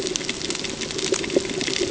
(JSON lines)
{"label": "ambient", "recorder": "HydroMoth"}